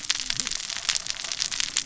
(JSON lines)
{"label": "biophony, cascading saw", "recorder": "SoundTrap 600 or HydroMoth"}